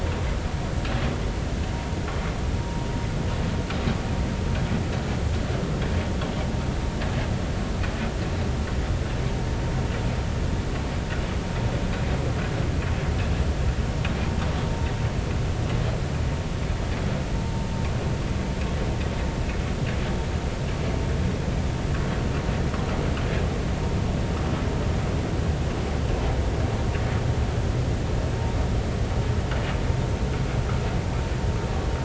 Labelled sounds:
2.6	2.9	vessel noise, 0.90 to 0.99 kHz

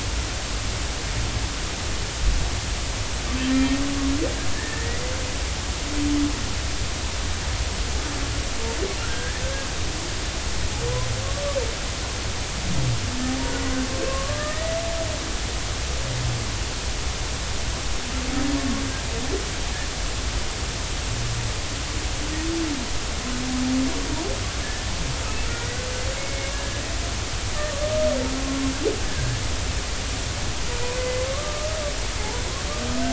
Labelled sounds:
4.5	5.0	humpback whale, 1.7 to 2.0 kHz
9.0	9.7	humpback whale, 1.3 to 1.9 kHz
14.1	14.8	humpback whale, 1.0 to 2.0 kHz
24.6	24.9	humpback whale, 1.6 to 1.8 kHz
25.5	26.8	humpback whale, 1.3 to 2.2 kHz
29.1	29.4	humpback whale, 1.5 to 1.8 kHz
31.0	31.7	humpback whale, 1.0 to 2.1 kHz

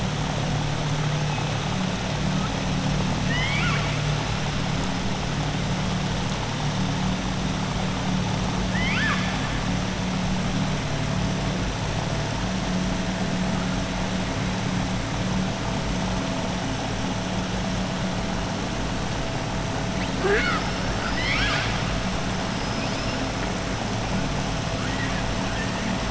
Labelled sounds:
3.2	4.0	killer whale, southern resident, 1.1 to 5.2 kHz
8.6	9.3	killer whale, southern resident, 1.1 to 5.3 kHz
20.9	21.8	killer whale, southern resident, 1.3 to 7.0 kHz
22.5	23.2	killer whale, southern resident, 4.5 to 6.0 kHz

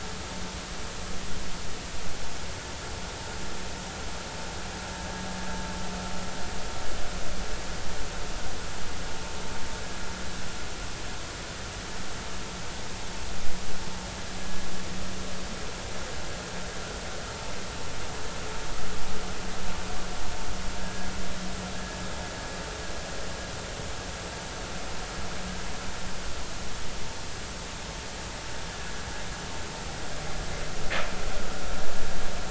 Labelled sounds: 20.8	21.1	vessel noise, 1.6 to 1.7 kHz

